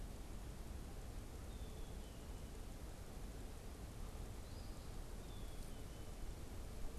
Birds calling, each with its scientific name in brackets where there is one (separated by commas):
Eastern Phoebe (Sayornis phoebe), Black-capped Chickadee (Poecile atricapillus)